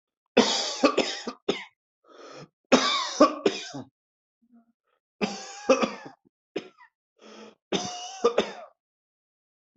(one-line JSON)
{"expert_labels": [{"quality": "good", "cough_type": "dry", "dyspnea": true, "wheezing": false, "stridor": false, "choking": false, "congestion": false, "nothing": false, "diagnosis": "obstructive lung disease", "severity": "mild"}], "age": 36, "gender": "male", "respiratory_condition": false, "fever_muscle_pain": false, "status": "healthy"}